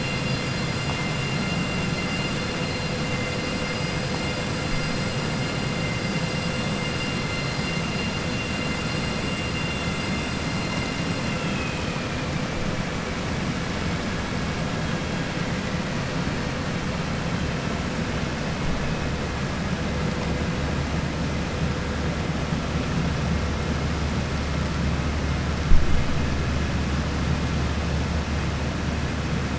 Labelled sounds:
11.2	12.1	vessel noise, 1.9 to 3.3 kHz

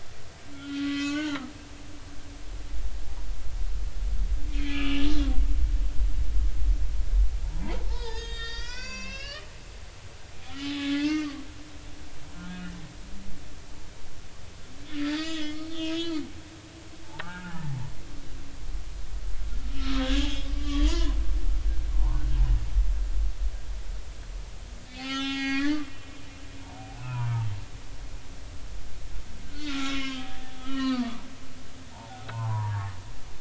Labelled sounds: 0.5	1.5	humpback whale, 1.1 to 5.6 kHz
4.5	5.1	humpback whale, 1.2 to 3.5 kHz
7.4	9.5	humpback whale, 0.80 to 7.9 kHz
10.6	11.4	humpback whale, 0.99 to 4.7 kHz
12.5	12.8	humpback whale, 2.8 to 2.9 kHz
15.0	16.3	humpback whale, 1.2 to 5.2 kHz
17.2	17.8	humpback whale, 0.80 to 1.9 kHz
19.8	21.2	humpback whale, 0.90 to 5.0 kHz
21.9	22.2	humpback whale, 0.80 to 1.2 kHz
24.9	25.9	humpback whale, 0.80 to 5.2 kHz
26.1	27.5	humpback whale, 0.80 to 6.3 kHz
29.5	31.2	humpback whale, 0.86 to 4.7 kHz
31.9	32.9	humpback whale, 0.80 to 1.3 kHz

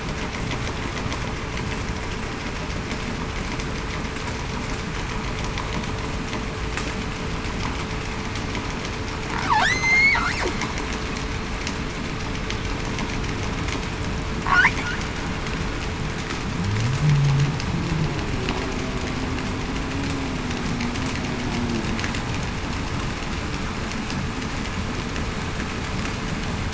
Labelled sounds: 9.6	10.2	killer whale, southern resident, 1.5 to 8.0 kHz

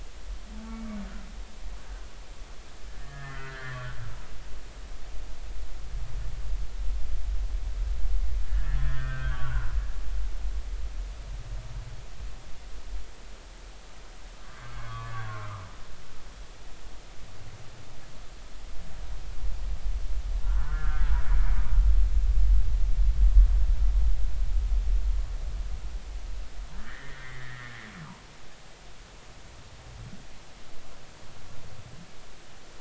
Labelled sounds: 1.8	2.0	humpback whale, 1.4 to 1.7 kHz
3.0	3.9	humpback whale, 1.1 to 2.1 kHz
8.4	9.7	humpback whale, 0.93 to 3.4 kHz
14.3	15.6	humpback whale, 0.96 to 2.2 kHz
20.4	21.2	humpback whale, 1.2 to 1.8 kHz
26.8	27.8	humpback whale, 1.4 to 2.2 kHz

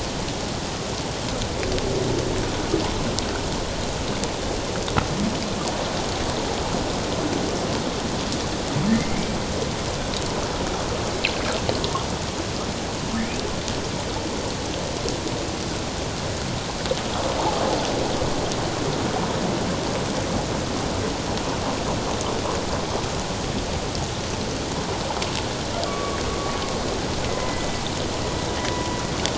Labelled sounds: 8.9	9.3	humpback whale, 2.0 to 2.4 kHz
25.8	26.2	humpback whale, 1.1 to 1.2 kHz
27.3	27.8	humpback whale, 1.9 to 2.1 kHz

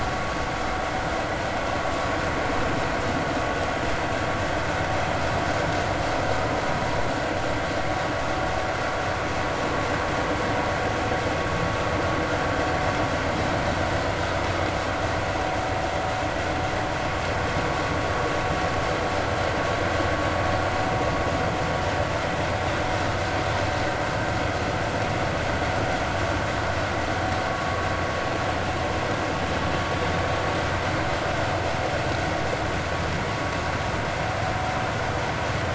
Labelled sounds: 27.5	27.8	vessel noise, 1.1 to 1.2 kHz

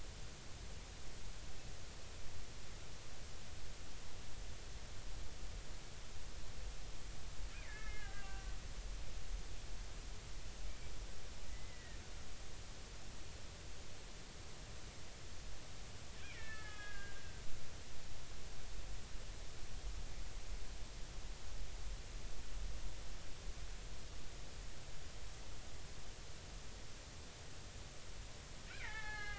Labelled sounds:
7.5	8.5	killer whale, Bigg's (transient), 1.1 to 3.0 kHz
11.5	12.0	killer whale, Bigg's (transient), 1.7 to 2.2 kHz
16.3	17.4	killer whale, Bigg's (transient), 1.2 to 3.5 kHz
28.7	29.3	killer whale, Bigg's (transient), 0.80 to 4.3 kHz

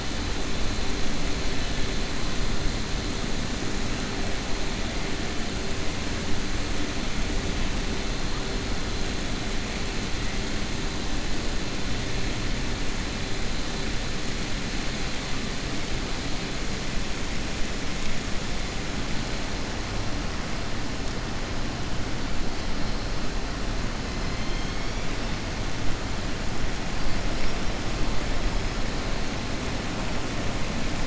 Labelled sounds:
24.3	25.1	killer whale, southern resident, 3.1 to 4.2 kHz

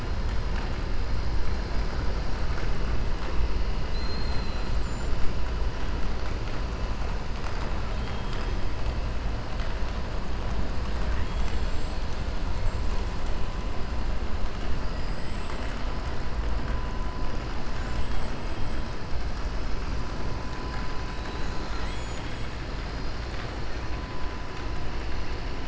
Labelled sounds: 3.8	4.7	killer whale, 3.3 to 4.8 kHz
11.0	12.2	killer whale, 1.2 to 7.9 kHz

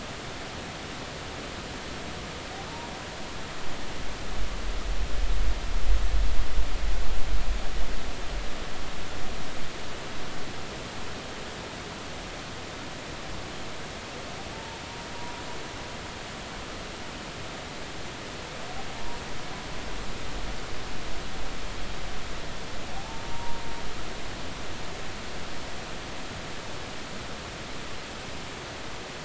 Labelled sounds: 14.5	14.8	humpback whale, 0.86 to 0.96 kHz
22.9	23.6	humpback whale, 0.80 to 0.99 kHz

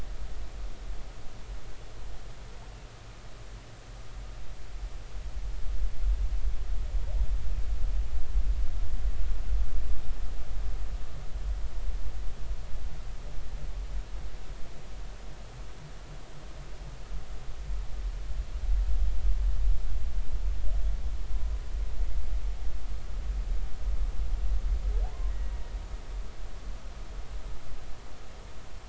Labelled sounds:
25.0	25.3	humpback whale, 0.80 to 1.1 kHz

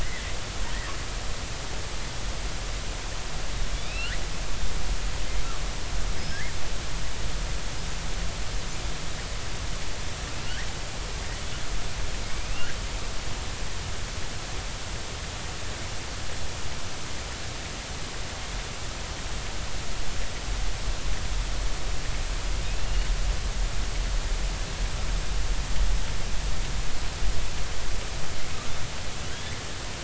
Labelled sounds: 0.0	0.3	killer whale, southern resident, J clan, 1.7 to 2.2 kHz
3.8	4.1	killer whale, southern resident, J clan, 2.2 to 3.1 kHz
6.1	6.6	killer whale, southern resident, J clan, 1.5 to 5.4 kHz
12.2	12.7	killer whale, southern resident, J clan, 2.1 to 2.9 kHz
22.6	23.1	killer whale, southern resident, J clan, 2.4 to 2.9 kHz

